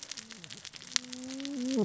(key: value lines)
label: biophony, cascading saw
recorder: SoundTrap 600 or HydroMoth